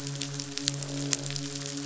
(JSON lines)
{"label": "biophony, midshipman", "recorder": "SoundTrap 500"}
{"label": "biophony, croak", "recorder": "SoundTrap 500"}